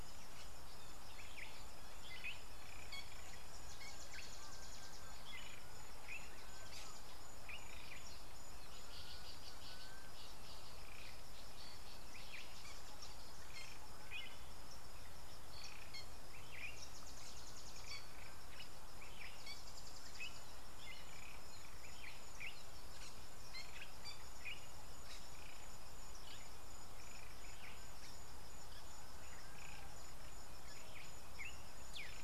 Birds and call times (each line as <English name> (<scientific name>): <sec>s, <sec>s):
Fork-tailed Drongo (Dicrurus adsimilis): 14.2s